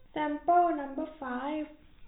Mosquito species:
no mosquito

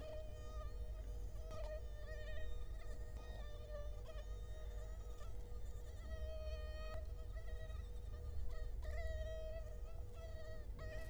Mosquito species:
Culex quinquefasciatus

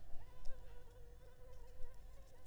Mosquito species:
Anopheles leesoni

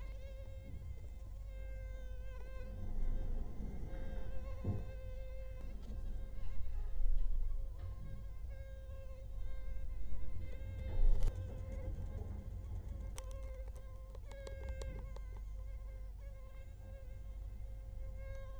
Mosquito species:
Culex quinquefasciatus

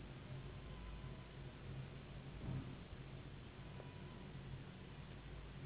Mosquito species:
Anopheles gambiae s.s.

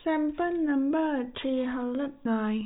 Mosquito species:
no mosquito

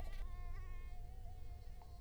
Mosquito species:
Culex quinquefasciatus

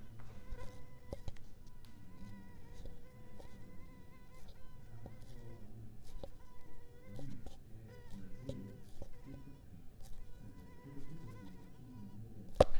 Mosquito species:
Culex pipiens complex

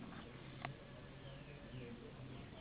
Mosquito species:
Anopheles gambiae s.s.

